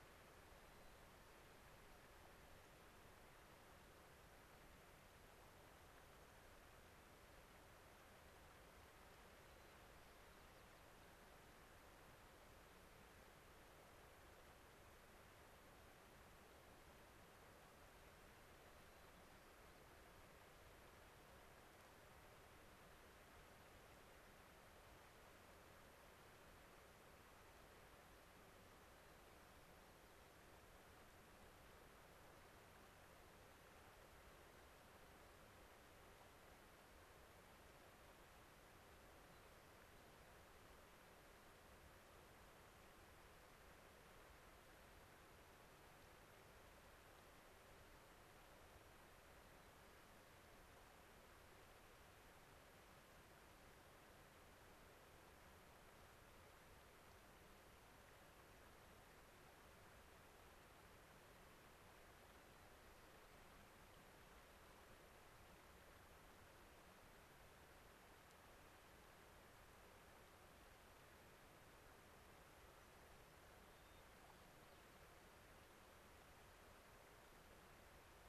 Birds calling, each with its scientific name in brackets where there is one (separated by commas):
White-crowned Sparrow (Zonotrichia leucophrys)